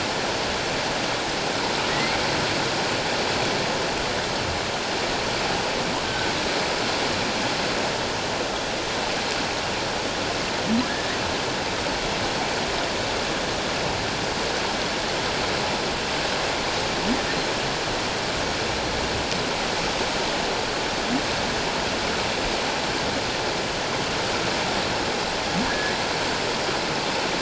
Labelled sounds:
1.9	2.2	humpback whale, 1.8 to 2.2 kHz
6.0	6.3	humpback whale, 1.4 to 1.6 kHz
10.8	11.2	humpback whale, 1.5 to 2.0 kHz
25.7	25.9	humpback whale, 1.6 to 1.8 kHz

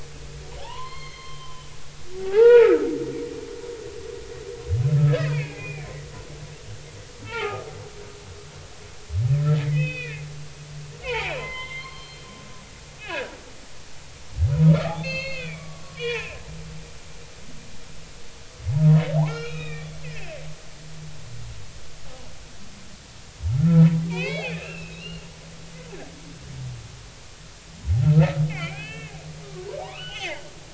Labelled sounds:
0.6	1.7	humpback whale, 0.80 to 4.4 kHz
2.2	2.9	humpback whale, 0.80 to 3.9 kHz
5.1	6.0	humpback whale, 1.6 to 2.7 kHz
7.2	7.7	humpback whale, 0.80 to 2.9 kHz
9.6	10.2	humpback whale, 1.4 to 3.6 kHz
11.0	12.2	humpback whale, 0.80 to 4.3 kHz
13.0	13.3	humpback whale, 1.5 to 2.7 kHz
14.6	16.4	humpback whale, 0.83 to 6.5 kHz
19.2	20.4	humpback whale, 1.1 to 6.6 kHz
23.5	25.3	humpback whale, 0.86 to 4.5 kHz
28.5	29.1	humpback whale, 1.5 to 3.2 kHz
29.8	30.4	humpback whale, 0.80 to 3.6 kHz

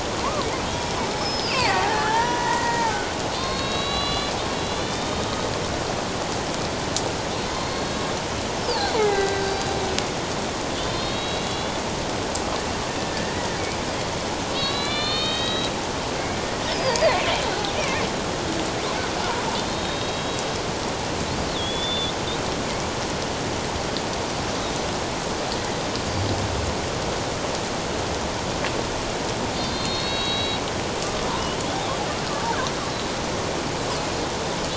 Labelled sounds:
1.2	5.3	killer whale, Bigg's (transient), 0.78 to 5.4 kHz
7.5	8.1	killer whale, Bigg's (transient), 3.7 to 4.4 kHz
8.6	9.7	killer whale, Bigg's (transient), 0.78 to 5.4 kHz
10.8	11.8	killer whale, Bigg's (transient), 2.7 to 4.5 kHz
13.0	13.3	killer whale, Bigg's (transient), 1.7 to 1.9 kHz
14.5	15.7	killer whale, Bigg's (transient), 1.1 to 4.5 kHz
16.7	17.0	killer whale, Bigg's (transient), 4.6 to 5.5 kHz
17.7	18.0	killer whale, Bigg's (transient), 2.1 to 2.6 kHz
19.6	20.5	killer whale, Bigg's (transient), 3.2 to 3.9 kHz
21.5	22.1	killer whale, Bigg's (transient), 3.2 to 3.9 kHz
29.6	30.6	killer whale, Bigg's (transient), 2.7 to 4.5 kHz

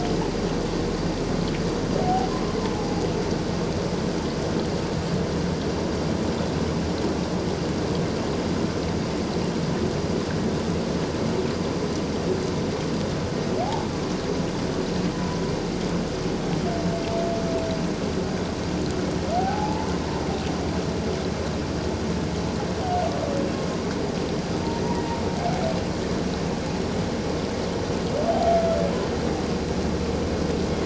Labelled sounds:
13.6	13.9	humpback whale, 0.78 to 0.97 kHz
19.4	19.9	humpback whale, 0.78 to 1.0 kHz

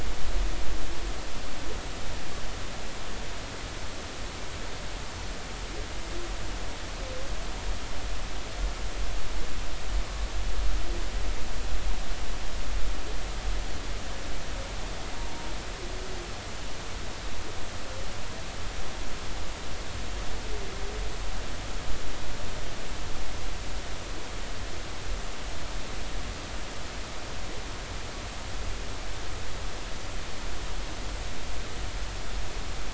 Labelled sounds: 16.2	16.5	humpback whale, 0.90 to 0.96 kHz

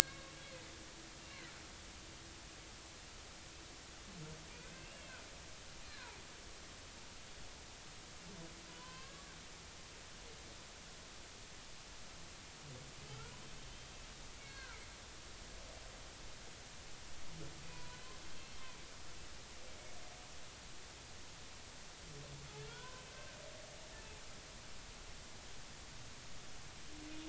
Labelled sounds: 0.1	0.3	humpback whale, 1.0 to 1.2 kHz
1.0	1.3	humpback whale, 1.5 to 2.2 kHz
4.6	5.2	humpback whale, 1.4 to 2.9 kHz
8.7	9.2	humpback whale, 0.96 to 3.2 kHz
14.4	14.8	humpback whale, 1.2 to 2.4 kHz
17.7	18.0	humpback whale, 0.93 to 1.1 kHz
22.7	23.0	humpback whale, 0.93 to 1.6 kHz

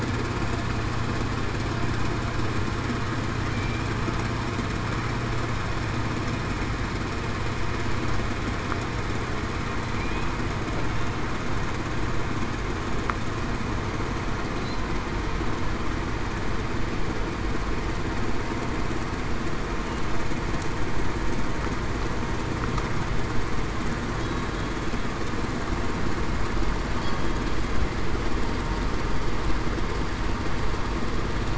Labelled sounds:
24.2	24.9	killer whale, Bigg's (transient), 3.3 to 3.9 kHz

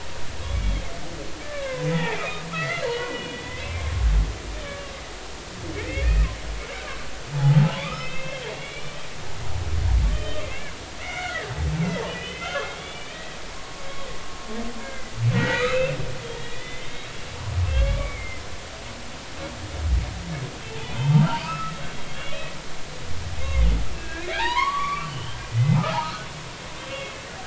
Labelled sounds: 1.4	4.9	humpback whale, 0.80 to 4.3 kHz
6.0	6.3	humpback whale, 1.8 to 2.6 kHz
7.3	9.0	humpback whale, 0.80 to 5.4 kHz
9.5	10.7	humpback whale, 1.1 to 3.3 kHz
11.0	16.9	humpback whale, 0.83 to 4.1 kHz
17.5	18.4	humpback whale, 1.1 to 3.6 kHz
20.7	22.4	humpback whale, 0.80 to 3.5 kHz
23.9	26.2	humpback whale, 0.80 to 3.3 kHz
26.8	27.1	humpback whale, 2.1 to 3.4 kHz

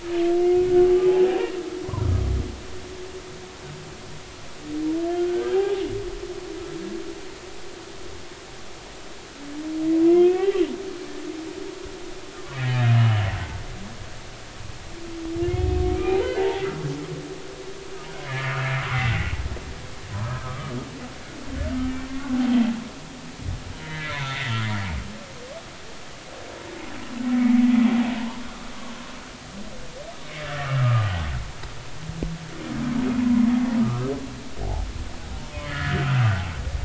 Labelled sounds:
2.0	2.2	humpback whale, 1.2 to 1.4 kHz
5.1	5.8	humpback whale, 0.80 to 3.2 kHz
10.0	10.6	humpback whale, 1.8 to 2.9 kHz
12.3	13.6	humpback whale, 1.1 to 3.1 kHz
15.8	16.6	humpback whale, 0.80 to 2.5 kHz
18.3	18.6	humpback whale, 1.7 to 2.4 kHz
20.4	20.7	humpback whale, 1.1 to 1.3 kHz
22.1	22.3	humpback whale, 0.93 to 1.2 kHz
23.8	24.5	humpback whale, 1.6 to 3.7 kHz
30.2	31.0	humpback whale, 1.1 to 2.3 kHz
33.2	33.4	humpback whale, 0.86 to 1.1 kHz
33.8	34.9	humpback whale, 0.80 to 1.4 kHz
35.6	36.0	humpback whale, 1.2 to 2.0 kHz

